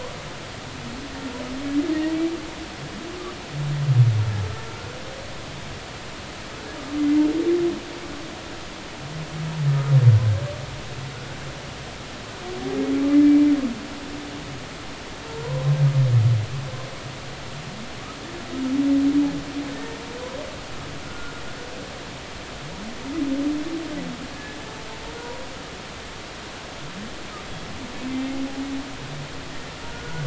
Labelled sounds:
7.0	7.2	humpback whale, 2.0 to 2.1 kHz
9.7	9.9	humpback whale, 1.2 to 1.3 kHz
19.7	20.0	humpback whale, 1.8 to 1.9 kHz
21.0	21.3	humpback whale, 1.3 to 1.5 kHz
29.9	30.2	humpback whale, 1.4 to 1.5 kHz

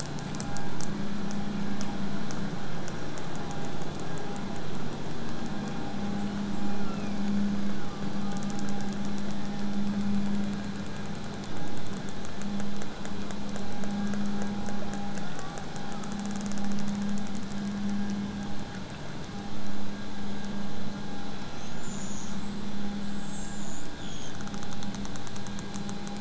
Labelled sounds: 6.2	10.0	killer whale, southern resident, whistle, 1.1 to 8.0 kHz
15.3	16.3	killer whale, southern resident, 1.0 to 7.8 kHz
21.6	24.4	killer whale, southern resident, whistle, 2.9 to 8.0 kHz

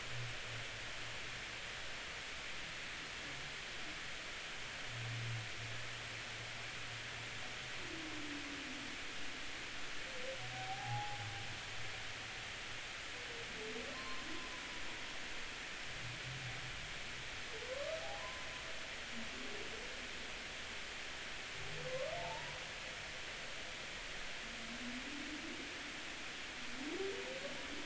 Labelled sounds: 10.5	11.2	humpback whale, 0.80 to 0.90 kHz
13.9	14.6	humpback whale, 0.96 to 1.1 kHz
18.0	18.5	humpback whale, 0.80 to 1.1 kHz
22.2	22.6	humpback whale, 0.80 to 1.0 kHz

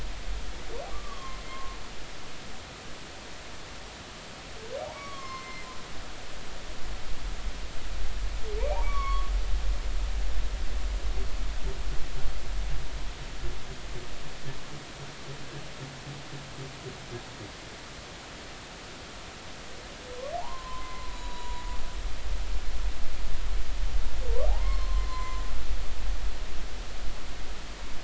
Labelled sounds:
0.9	1.8	humpback whale, 0.99 to 1.2 kHz
4.9	5.7	humpback whale, 0.99 to 2.3 kHz
8.7	9.3	humpback whale, 0.80 to 5.7 kHz
20.4	21.6	humpback whale, 0.80 to 4.0 kHz
24.5	25.4	humpback whale, 0.80 to 5.4 kHz

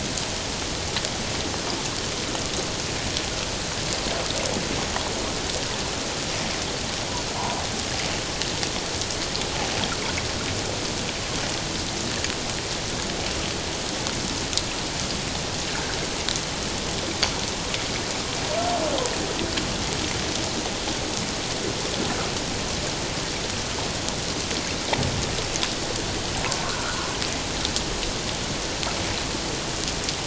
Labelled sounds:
26.6	27.1	humpback whale, 1.0 to 1.6 kHz

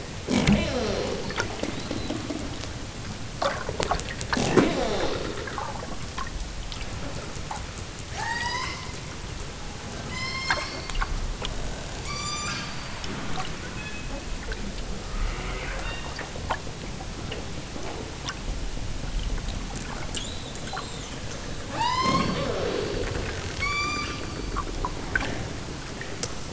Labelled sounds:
8.1	8.9	killer whale, southern Alaska resident, 0.50 to 8.0 kHz
10.1	10.8	killer whale, southern Alaska resident, 0.69 to 8.0 kHz
12.0	14.2	killer whale, southern Alaska resident, 0.69 to 8.0 kHz
15.1	16.1	killer whale, southern Alaska resident, 0.55 to 5.3 kHz
21.7	22.4	killer whale, southern Alaska resident, 0.55 to 8.0 kHz
23.6	24.2	killer whale, southern Alaska resident, 0.64 to 8.0 kHz

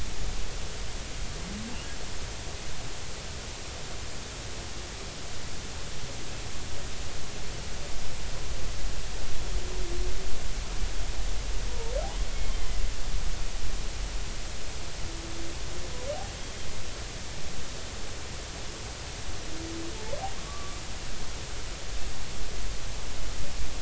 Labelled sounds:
11.7	11.9	humpback whale, 0.86 to 0.99 kHz
20.4	20.8	humpback whale, 1.1 to 1.2 kHz

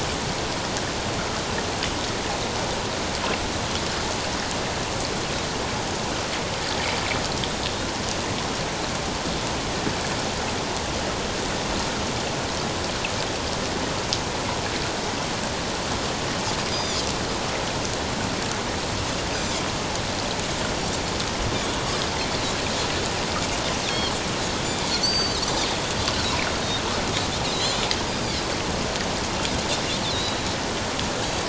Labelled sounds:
16.7	17.0	Pacific white-sided dolphin, 3.3 to 5.0 kHz
19.3	19.6	Pacific white-sided dolphin, 5.9 to 6.2 kHz
23.9	24.1	Pacific white-sided dolphin, 2.9 to 3.3 kHz
24.7	25.4	Pacific white-sided dolphin, 3.3 to 6.2 kHz
27.5	28.4	Pacific white-sided dolphin, 3.8 to 5.0 kHz
30.1	30.5	Pacific white-sided dolphin, 3.7 to 4.5 kHz

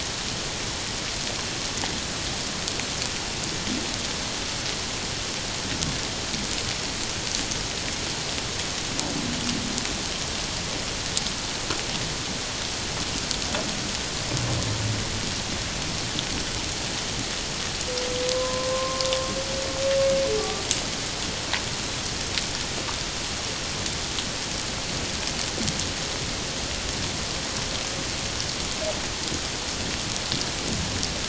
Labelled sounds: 18.3	19.1	humpback whale, 0.97 to 1.1 kHz
20.4	20.6	humpback whale, 1.1 to 1.2 kHz

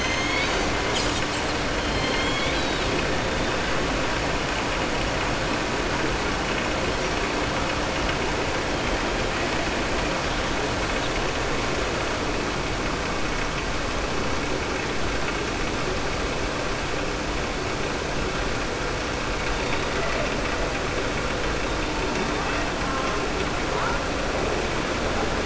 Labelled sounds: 1.8	2.9	killer whale, southern resident, 1.8 to 4.7 kHz

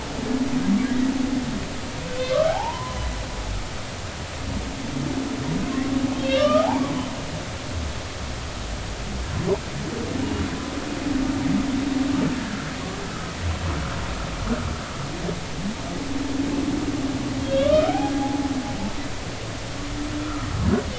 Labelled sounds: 2.3	3.0	humpback whale, 0.80 to 1.3 kHz
5.7	6.9	humpback whale, 0.80 to 4.0 kHz
17.4	18.4	humpback whale, 0.80 to 3.5 kHz
20.2	20.5	humpback whale, 1.2 to 1.4 kHz

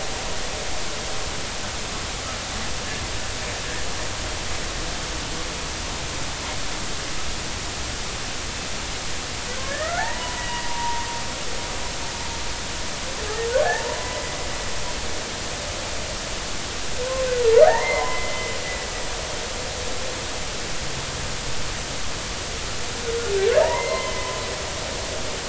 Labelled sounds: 9.7	11.1	humpback whale, 0.80 to 2.3 kHz
13.6	14.2	humpback whale, 0.80 to 2.0 kHz
17.6	18.6	humpback whale, 0.80 to 2.2 kHz
23.6	24.4	humpback whale, 0.83 to 2.2 kHz

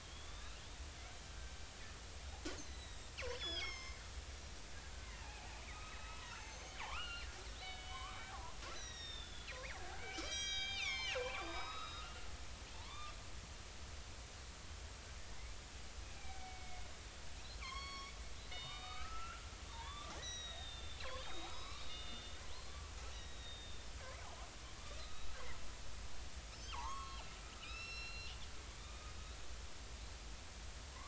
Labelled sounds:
0.0	0.8	killer whale, northern resident, 3.1 to 4.2 kHz
2.6	4.6	killer whale, northern resident, 0.99 to 8.0 kHz
5.2	8.2	killer whale, northern resident, 0.80 to 6.6 kHz
8.7	12.1	killer whale, northern resident, 0.80 to 8.0 kHz
12.7	13.1	killer whale, northern resident, 0.83 to 1.2 kHz
16.2	16.9	killer whale, northern resident, 0.80 to 2.4 kHz
17.6	22.4	killer whale, northern resident, 0.80 to 6.2 kHz
23.1	23.9	killer whale, northern resident, 3.6 to 4.0 kHz
24.2	24.5	killer whale, northern resident, 0.80 to 1.1 kHz
25.0	25.3	killer whale, northern resident, 1.2 to 3.9 kHz
26.5	27.3	killer whale, northern resident, 0.80 to 5.4 kHz
27.6	29.1	killer whale, northern resident, 1.2 to 5.6 kHz

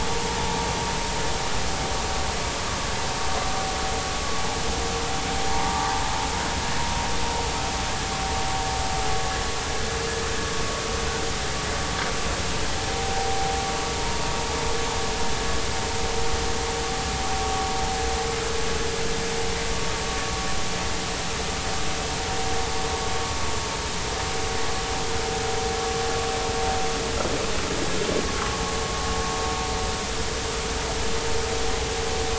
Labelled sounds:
5.6	5.9	vessel noise, 1.15 to 1.22 kHz
12.9	13.6	vessel noise, 0.80 to 0.93 kHz

